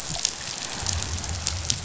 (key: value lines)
label: biophony
recorder: SoundTrap 500